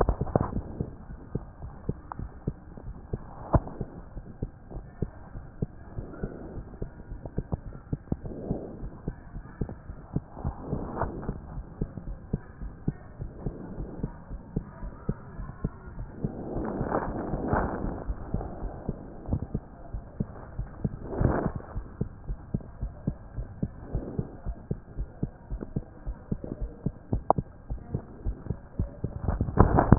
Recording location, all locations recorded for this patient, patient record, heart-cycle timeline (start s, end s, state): aortic valve (AV)
aortic valve (AV)+pulmonary valve (PV)+tricuspid valve (TV)+mitral valve (MV)
#Age: Child
#Sex: Female
#Height: 116.0 cm
#Weight: 19.1 kg
#Pregnancy status: False
#Murmur: Absent
#Murmur locations: nan
#Most audible location: nan
#Systolic murmur timing: nan
#Systolic murmur shape: nan
#Systolic murmur grading: nan
#Systolic murmur pitch: nan
#Systolic murmur quality: nan
#Diastolic murmur timing: nan
#Diastolic murmur shape: nan
#Diastolic murmur grading: nan
#Diastolic murmur pitch: nan
#Diastolic murmur quality: nan
#Outcome: Normal
#Campaign: 2014 screening campaign
0.18	0.28	systole
0.28	0.40	S2
0.40	0.54	diastole
0.54	0.66	S1
0.66	0.78	systole
0.78	0.88	S2
0.88	1.08	diastole
1.08	1.18	S1
1.18	1.32	systole
1.32	1.44	S2
1.44	1.62	diastole
1.62	1.72	S1
1.72	1.86	systole
1.86	1.96	S2
1.96	2.18	diastole
2.18	2.30	S1
2.30	2.46	systole
2.46	2.58	S2
2.58	2.82	diastole
2.82	2.94	S1
2.94	3.12	systole
3.12	3.22	S2
3.22	3.46	diastole
3.46	3.64	S1
3.64	3.78	systole
3.78	3.88	S2
3.88	4.12	diastole
4.12	4.22	S1
4.22	4.40	systole
4.40	4.50	S2
4.50	4.72	diastole
4.72	4.84	S1
4.84	5.00	systole
5.00	5.10	S2
5.10	5.34	diastole
5.34	5.44	S1
5.44	5.60	systole
5.60	5.72	S2
5.72	5.96	diastole
5.96	6.08	S1
6.08	6.22	systole
6.22	6.36	S2
6.36	6.56	diastole
6.56	6.66	S1
6.66	6.80	systole
6.80	6.90	S2
6.90	7.10	diastole
7.10	7.20	S1
7.20	7.36	systole
7.36	7.46	S2
7.46	7.66	diastole
7.66	7.74	S1
7.74	7.88	systole
7.88	8.00	S2
8.00	8.24	diastole
8.24	8.34	S1
8.34	8.48	systole
8.48	8.62	S2
8.62	8.80	diastole
8.80	8.92	S1
8.92	9.06	systole
9.06	9.16	S2
9.16	9.36	diastole
9.36	9.44	S1
9.44	9.60	systole
9.60	9.70	S2
9.70	9.90	diastole
9.90	9.98	S1
9.98	10.14	systole
10.14	10.24	S2
10.24	10.44	diastole
10.44	10.56	S1
10.56	10.70	systole
10.70	10.84	S2
10.84	11.00	diastole
11.00	11.14	S1
11.14	11.26	systole
11.26	11.38	S2
11.38	11.54	diastole
11.54	11.66	S1
11.66	11.80	systole
11.80	11.90	S2
11.90	12.06	diastole
12.06	12.18	S1
12.18	12.32	systole
12.32	12.42	S2
12.42	12.62	diastole
12.62	12.74	S1
12.74	12.86	systole
12.86	12.98	S2
12.98	13.20	diastole
13.20	13.32	S1
13.32	13.44	systole
13.44	13.56	S2
13.56	13.76	diastole
13.76	13.90	S1
13.90	14.02	systole
14.02	14.14	S2
14.14	14.32	diastole
14.32	14.40	S1
14.40	14.52	systole
14.52	14.64	S2
14.64	14.84	diastole
14.84	14.94	S1
14.94	15.06	systole
15.06	15.18	S2
15.18	15.38	diastole
15.38	15.50	S1
15.50	15.62	systole
15.62	15.74	S2
15.74	15.98	diastole
15.98	16.10	S1
16.10	16.22	systole
16.22	16.34	S2
16.34	16.52	diastole
16.52	16.66	S1
16.66	16.76	systole
16.76	16.90	S2
16.90	17.06	diastole
17.06	17.18	S1
17.18	17.28	systole
17.28	17.40	S2
17.40	17.54	diastole
17.54	17.72	S1
17.72	17.84	systole
17.84	17.94	S2
17.94	18.08	diastole
18.08	18.20	S1
18.20	18.32	systole
18.32	18.46	S2
18.46	18.64	diastole
18.64	18.76	S1
18.76	18.88	systole
18.88	19.02	S2
19.02	19.26	diastole
19.26	19.40	S1
19.40	19.52	systole
19.52	19.64	S2
19.64	19.88	diastole
19.88	20.04	S1
20.04	20.18	systole
20.18	20.34	S2
20.34	20.56	diastole
20.56	20.70	S1
20.70	20.82	systole
20.82	20.94	S2
20.94	21.16	diastole
21.16	21.34	S1
21.34	21.44	systole
21.44	21.54	S2
21.54	21.74	diastole
21.74	21.88	S1
21.88	21.98	systole
21.98	22.08	S2
22.08	22.28	diastole
22.28	22.38	S1
22.38	22.50	systole
22.50	22.62	S2
22.62	22.80	diastole
22.80	22.94	S1
22.94	23.06	systole
23.06	23.18	S2
23.18	23.36	diastole
23.36	23.48	S1
23.48	23.60	systole
23.60	23.72	S2
23.72	23.92	diastole
23.92	24.04	S1
24.04	24.16	systole
24.16	24.26	S2
24.26	24.46	diastole
24.46	24.58	S1
24.58	24.68	systole
24.68	24.80	S2
24.80	24.98	diastole
24.98	25.08	S1
25.08	25.20	systole
25.20	25.30	S2
25.30	25.50	diastole
25.50	25.62	S1
25.62	25.74	systole
25.74	25.86	S2
25.86	26.08	diastole
26.08	26.18	S1
26.18	26.30	systole
26.30	26.42	S2
26.42	26.60	diastole
26.60	26.72	S1
26.72	26.84	systole
26.84	26.96	S2
26.96	27.12	diastole
27.12	27.24	S1
27.24	27.36	systole
27.36	27.48	S2
27.48	27.68	diastole
27.68	27.80	S1
27.80	27.92	systole
27.92	28.02	S2
28.02	28.24	diastole
28.24	28.38	S1
28.38	28.48	systole
28.48	28.58	S2
28.58	28.78	diastole
28.78	28.90	S1
28.90	29.02	systole
29.02	29.12	S2
29.12	29.30	diastole
29.30	29.48	S1
29.48	29.58	systole
29.58	29.72	S2
29.72	29.86	diastole
29.86	29.98	S1